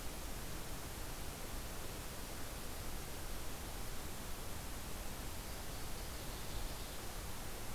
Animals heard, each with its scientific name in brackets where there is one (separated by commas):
Northern Waterthrush (Parkesia noveboracensis)